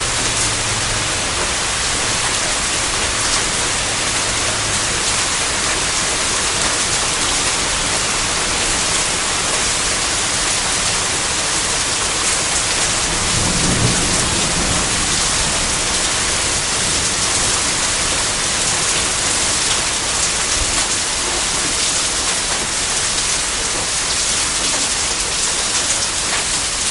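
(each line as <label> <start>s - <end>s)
Rainfall continues. 0.0s - 26.9s
A faint, low thunder rumble. 13.1s - 14.8s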